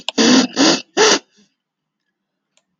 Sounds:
Sniff